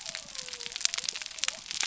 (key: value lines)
label: biophony
recorder: SoundTrap 300